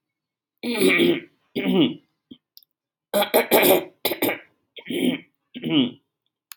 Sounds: Throat clearing